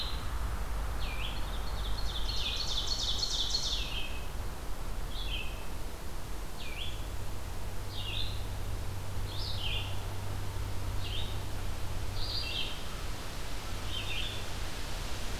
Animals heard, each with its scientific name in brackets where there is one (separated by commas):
Red-eyed Vireo (Vireo olivaceus), Ovenbird (Seiurus aurocapilla)